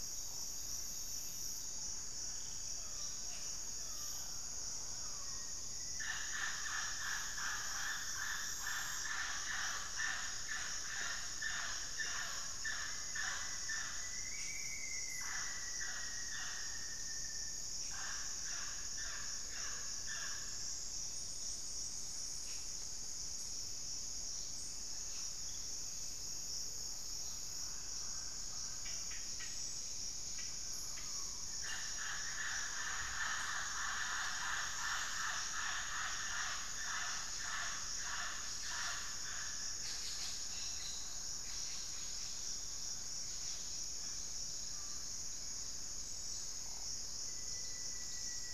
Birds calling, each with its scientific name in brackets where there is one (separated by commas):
White-rumped Sirystes (Sirystes albocinereus), Rusty-fronted Tody-Flycatcher (Poecilotriccus latirostris), Cobalt-winged Parakeet (Brotogeris cyanoptera), Scale-breasted Woodpecker (Celeus grammicus), Rufous-fronted Antthrush (Formicarius rufifrons), Black-faced Antthrush (Formicarius analis), Pygmy Antwren (Myrmotherula brachyura), Mealy Parrot (Amazona farinosa)